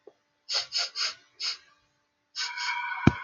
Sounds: Sniff